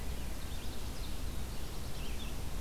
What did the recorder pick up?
Ovenbird, Red-eyed Vireo, Black-throated Blue Warbler